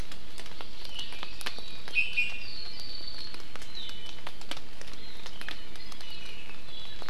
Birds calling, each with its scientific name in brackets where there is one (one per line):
Iiwi (Drepanis coccinea)
Hawaii Amakihi (Chlorodrepanis virens)